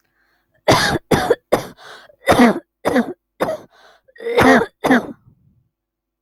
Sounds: Cough